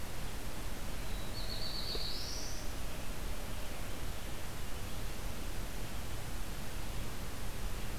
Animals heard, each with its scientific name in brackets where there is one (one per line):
Black-throated Blue Warbler (Setophaga caerulescens)